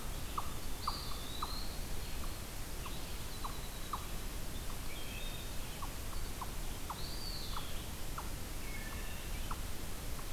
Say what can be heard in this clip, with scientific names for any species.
unknown mammal, Contopus virens, Troglodytes hiemalis, Hylocichla mustelina